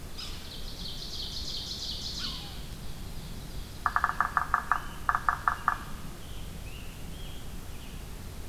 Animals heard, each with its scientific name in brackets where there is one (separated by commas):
Ovenbird (Seiurus aurocapilla), Scarlet Tanager (Piranga olivacea), Yellow-bellied Sapsucker (Sphyrapicus varius)